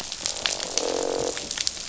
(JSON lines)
{"label": "biophony, croak", "recorder": "SoundTrap 500"}